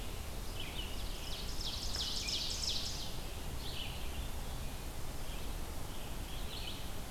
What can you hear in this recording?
Red-eyed Vireo, Ovenbird